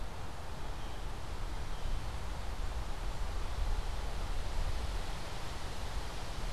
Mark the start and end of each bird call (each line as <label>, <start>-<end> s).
Blue Jay (Cyanocitta cristata), 0.5-2.1 s